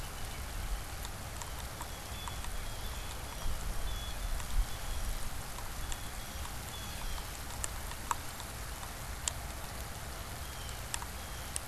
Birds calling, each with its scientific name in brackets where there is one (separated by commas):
Blue Jay (Cyanocitta cristata)